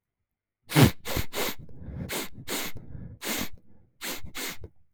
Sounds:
Sniff